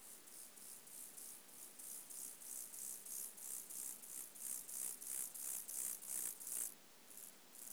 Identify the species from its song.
Chorthippus mollis